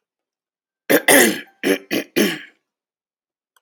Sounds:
Throat clearing